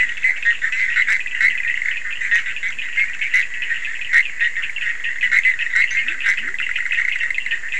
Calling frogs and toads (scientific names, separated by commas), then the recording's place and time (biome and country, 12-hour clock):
Leptodactylus latrans, Boana bischoffi, Sphaenorhynchus surdus
Atlantic Forest, Brazil, 1:00am